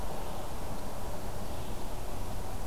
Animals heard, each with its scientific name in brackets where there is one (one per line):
Red-eyed Vireo (Vireo olivaceus)